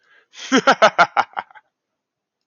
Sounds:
Laughter